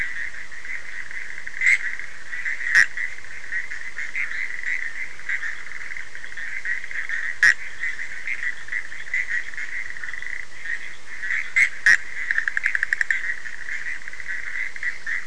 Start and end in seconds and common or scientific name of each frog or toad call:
0.0	15.2	Bischoff's tree frog
4.1	4.4	fine-lined tree frog